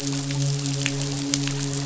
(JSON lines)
{"label": "biophony, midshipman", "recorder": "SoundTrap 500"}